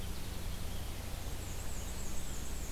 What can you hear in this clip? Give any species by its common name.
Black-and-white Warbler